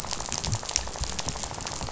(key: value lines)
label: biophony, rattle
recorder: SoundTrap 500